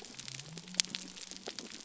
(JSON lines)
{"label": "biophony", "recorder": "SoundTrap 300"}